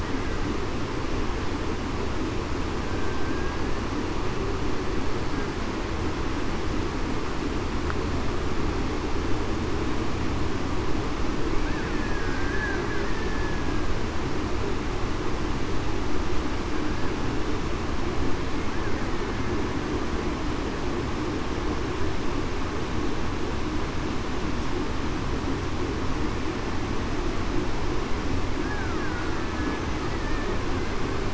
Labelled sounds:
3.3	3.6	killer whale, Bigg's (transient), 1.5 to 1.7 kHz
11.9	12.7	killer whale, Bigg's (transient), 1.5 to 1.8 kHz
13.0	13.6	killer whale, Bigg's (transient), 1.7 to 1.9 kHz
28.6	29.0	killer whale, Bigg's (transient), 1.2 to 1.7 kHz

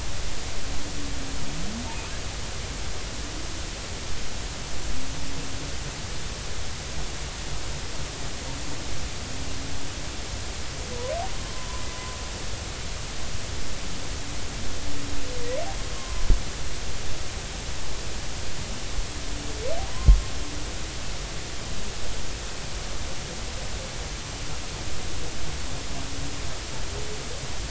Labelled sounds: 16.0	16.2	humpback whale, 0.96 to 1.2 kHz
19.9	20.2	humpback whale, 0.93 to 1.1 kHz

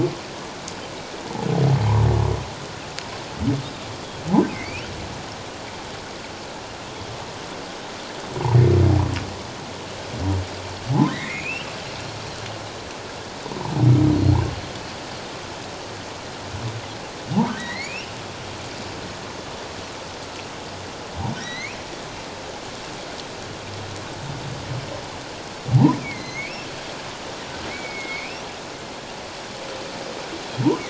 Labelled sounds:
4.5	4.9	humpback whale, 1.9 to 3.2 kHz
11.1	11.7	humpback whale, 1.8 to 3.2 kHz
17.6	18.1	humpback whale, 1.8 to 4.8 kHz
21.3	21.8	humpback whale, 1.8 to 5.9 kHz
25.7	26.7	humpback whale, 0.78 to 6.7 kHz
27.7	28.4	humpback whale, 2.1 to 2.8 kHz

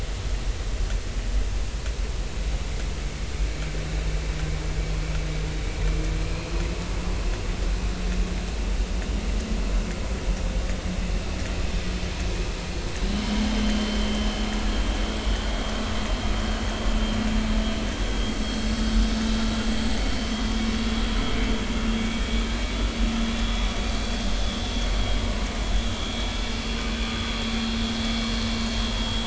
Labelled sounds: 6.2	6.5	vessel noise, 2.3 to 2.6 kHz
13.1	14.5	vessel noise, 3.0 to 3.3 kHz
15.5	15.7	vessel noise, 3.2 to 3.4 kHz
18.3	18.7	vessel noise, 4.2 to 4.5 kHz
29.0	29.2	vessel noise, 3.26 to 3.33 kHz

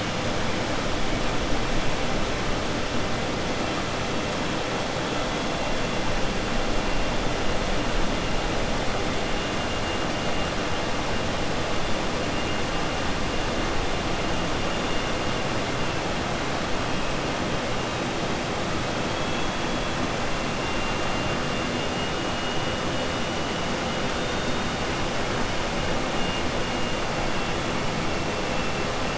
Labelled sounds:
21.5	22.1	killer whale, southern resident, 2.1 to 3.6 kHz

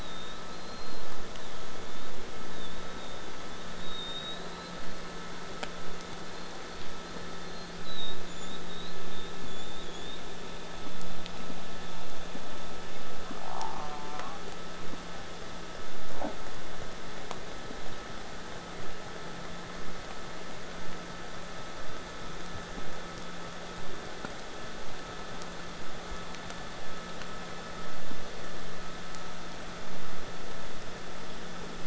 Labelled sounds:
0.0	5.0	killer whale, southern resident, J pod, whistle, 3.2 to 8.0 kHz
6.2	10.2	killer whale, southern resident, J pod, whistle, 3.2 to 8.0 kHz
13.4	14.4	killer whale, southern resident, J pod, call S04, 0.21 to 1.7 kHz

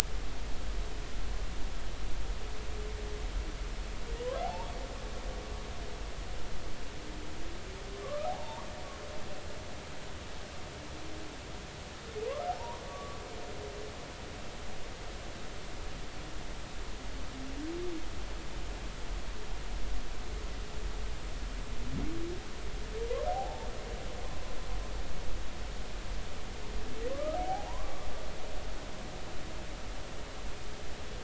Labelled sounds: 4.4	4.7	humpback whale, 0.80 to 0.99 kHz
8.0	8.7	humpback whale, 0.80 to 1.3 kHz
12.5	13.2	humpback whale, 0.80 to 1.2 kHz
23.3	23.7	humpback whale, 0.80 to 0.96 kHz
27.1	28.1	humpback whale, 0.80 to 1.3 kHz

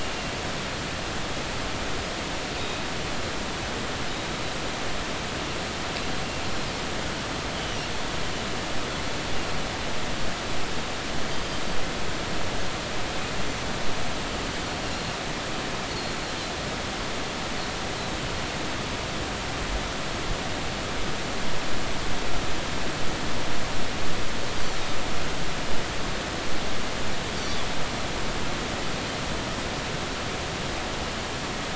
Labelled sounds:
7.6	7.9	Pacific white-sided dolphin, 2.7 to 3.1 kHz
11.3	11.7	Pacific white-sided dolphin, 4.6 to 4.9 kHz
15.9	16.1	Pacific white-sided dolphin, 4.2 to 4.5 kHz
27.4	27.6	Pacific white-sided dolphin, 4.2 to 4.7 kHz

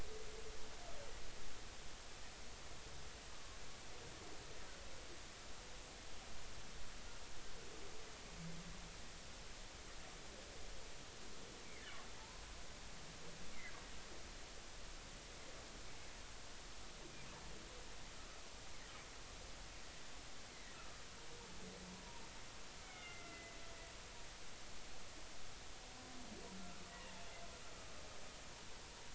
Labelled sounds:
3.3	3.6	humpback whale, 1.0 to 1.2 kHz
12.2	12.4	humpback whale, 0.83 to 1.1 kHz
20.7	21.0	humpback whale, 1.2 to 1.5 kHz
21.9	23.6	humpback whale, 0.90 to 2.3 kHz
26.6	27.1	humpback whale, 1.2 to 2.0 kHz

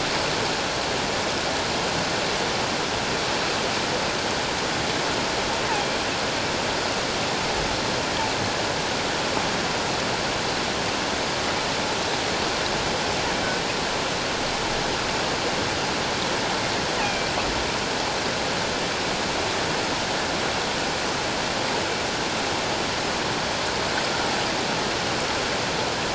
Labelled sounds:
17.0	17.3	killer whale, offshore, call OFF17, 2.3 to 2.7 kHz

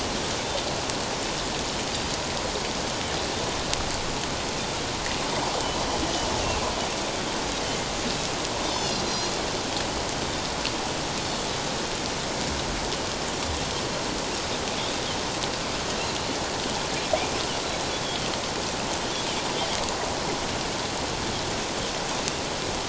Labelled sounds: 8.6	9.3	Pacific white-sided dolphin, 3.4 to 4.2 kHz
18.0	18.3	Pacific white-sided dolphin, 3.0 to 3.5 kHz

